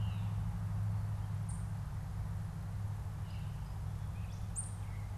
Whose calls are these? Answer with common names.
Veery, unidentified bird, Gray Catbird